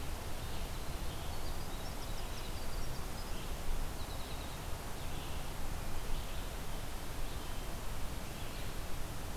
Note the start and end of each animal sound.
[0.00, 9.36] Red-eyed Vireo (Vireo olivaceus)
[0.26, 4.78] Winter Wren (Troglodytes hiemalis)

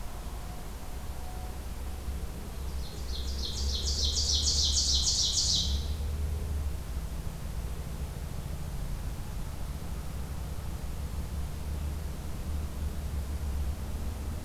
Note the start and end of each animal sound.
[2.57, 6.04] Ovenbird (Seiurus aurocapilla)

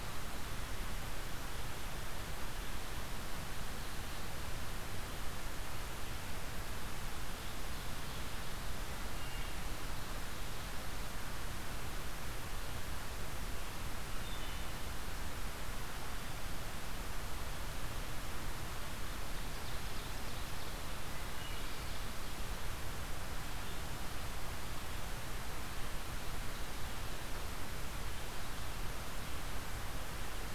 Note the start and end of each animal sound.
[9.05, 9.58] Wood Thrush (Hylocichla mustelina)
[14.00, 14.87] Wood Thrush (Hylocichla mustelina)
[19.02, 20.86] Ovenbird (Seiurus aurocapilla)
[21.05, 21.93] Wood Thrush (Hylocichla mustelina)

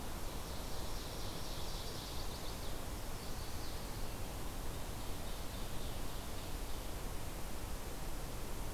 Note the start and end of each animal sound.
[0.00, 2.86] Ovenbird (Seiurus aurocapilla)
[2.02, 3.90] Chestnut-sided Warbler (Setophaga pensylvanica)
[4.40, 6.82] Ovenbird (Seiurus aurocapilla)

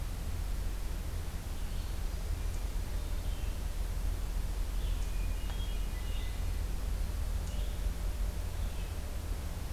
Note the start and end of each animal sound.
[0.00, 9.72] Red-eyed Vireo (Vireo olivaceus)
[4.94, 6.49] Hermit Thrush (Catharus guttatus)

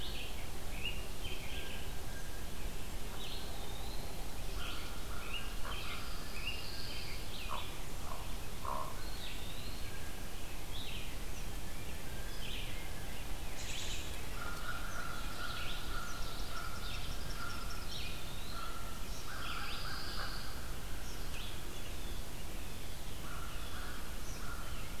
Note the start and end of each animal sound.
[0.00, 25.00] Red-eyed Vireo (Vireo olivaceus)
[0.54, 1.79] American Robin (Turdus migratorius)
[1.42, 2.67] Blue Jay (Cyanocitta cristata)
[3.09, 4.31] Eastern Wood-Pewee (Contopus virens)
[4.52, 5.34] American Crow (Corvus brachyrhynchos)
[5.06, 7.70] American Robin (Turdus migratorius)
[5.57, 8.95] Hooded Merganser (Lophodytes cucullatus)
[5.69, 7.33] Pine Warbler (Setophaga pinus)
[8.79, 10.03] Eastern Wood-Pewee (Contopus virens)
[9.72, 10.25] Blue Jay (Cyanocitta cristata)
[12.00, 13.31] Blue Jay (Cyanocitta cristata)
[13.43, 14.07] American Robin (Turdus migratorius)
[14.26, 20.80] American Crow (Corvus brachyrhynchos)
[15.81, 18.10] Eastern Kingbird (Tyrannus tyrannus)
[17.65, 18.82] Eastern Wood-Pewee (Contopus virens)
[18.96, 19.25] Eastern Kingbird (Tyrannus tyrannus)
[19.30, 20.69] Pine Warbler (Setophaga pinus)
[20.97, 21.17] Eastern Kingbird (Tyrannus tyrannus)
[21.82, 25.00] Blue Jay (Cyanocitta cristata)
[23.04, 25.00] American Crow (Corvus brachyrhynchos)
[24.18, 24.50] Eastern Kingbird (Tyrannus tyrannus)

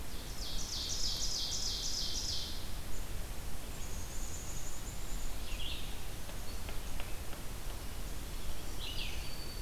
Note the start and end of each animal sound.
[0.00, 2.79] Ovenbird (Seiurus aurocapilla)
[3.75, 5.41] Black-capped Chickadee (Poecile atricapillus)
[5.40, 9.62] Red-eyed Vireo (Vireo olivaceus)
[8.55, 9.62] Black-throated Green Warbler (Setophaga virens)

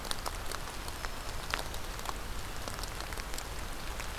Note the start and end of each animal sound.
[0.52, 2.18] Black-throated Green Warbler (Setophaga virens)

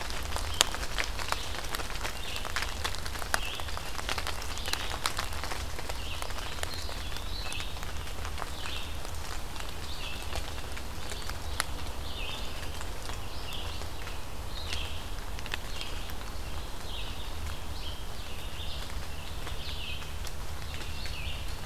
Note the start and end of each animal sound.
[0.00, 21.66] Red-eyed Vireo (Vireo olivaceus)
[6.72, 7.51] Eastern Wood-Pewee (Contopus virens)

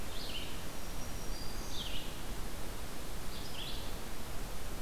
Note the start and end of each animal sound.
[0.00, 4.82] Red-eyed Vireo (Vireo olivaceus)
[0.72, 1.99] Black-throated Green Warbler (Setophaga virens)

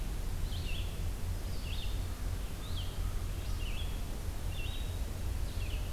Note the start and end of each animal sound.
[0.00, 5.92] Red-eyed Vireo (Vireo olivaceus)
[2.33, 4.03] American Crow (Corvus brachyrhynchos)

